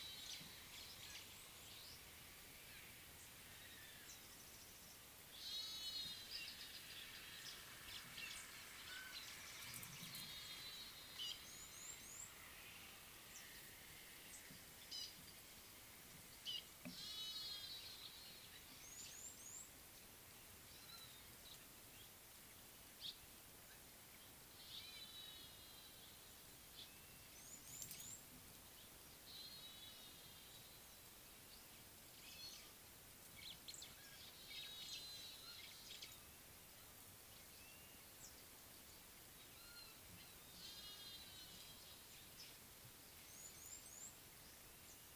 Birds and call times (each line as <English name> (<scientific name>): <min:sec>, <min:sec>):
Red-cheeked Cordonbleu (Uraeginthus bengalus): 0:11.9, 0:19.2, 0:27.8, 0:43.6
Gray-backed Camaroptera (Camaroptera brevicaudata): 0:14.9
Red-rumped Swallow (Cecropis daurica): 0:23.0